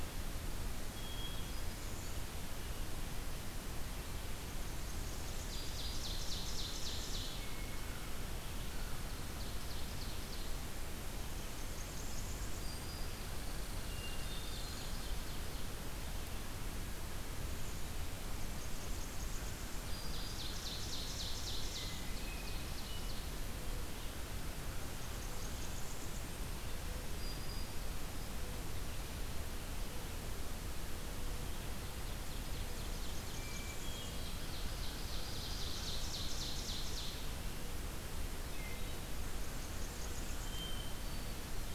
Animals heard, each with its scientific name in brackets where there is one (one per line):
Hermit Thrush (Catharus guttatus)
Black-throated Green Warbler (Setophaga virens)
Ovenbird (Seiurus aurocapilla)
Red Squirrel (Tamiasciurus hudsonicus)
Blackburnian Warbler (Setophaga fusca)